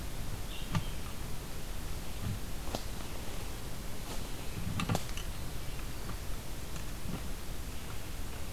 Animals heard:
forest ambience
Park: Hubbard Brook Experimental Forest